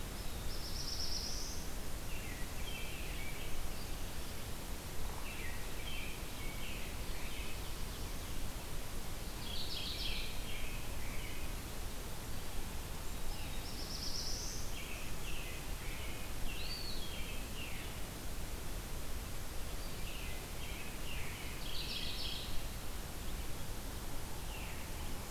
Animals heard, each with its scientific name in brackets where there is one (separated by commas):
Mourning Warbler (Geothlypis philadelphia), Black-throated Blue Warbler (Setophaga caerulescens), Eastern Wood-Pewee (Contopus virens), Veery (Catharus fuscescens), American Robin (Turdus migratorius)